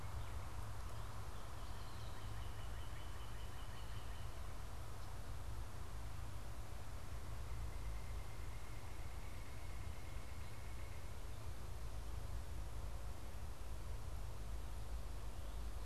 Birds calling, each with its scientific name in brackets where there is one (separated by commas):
unidentified bird, Northern Cardinal (Cardinalis cardinalis)